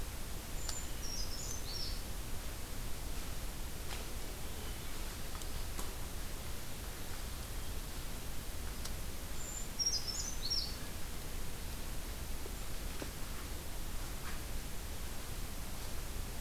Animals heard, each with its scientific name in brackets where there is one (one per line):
Brown Creeper (Certhia americana)